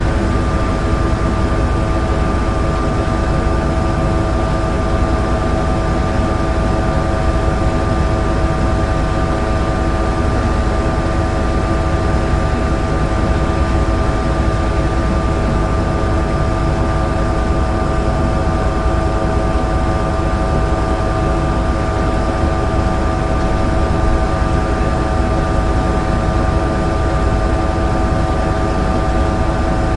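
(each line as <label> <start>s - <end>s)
A close machine whirrs constantly. 0.0s - 30.0s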